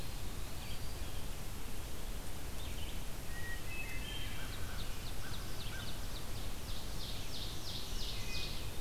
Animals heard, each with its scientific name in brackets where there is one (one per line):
Ovenbird (Seiurus aurocapilla)
Red-eyed Vireo (Vireo olivaceus)
Hermit Thrush (Catharus guttatus)
American Crow (Corvus brachyrhynchos)
Eastern Wood-Pewee (Contopus virens)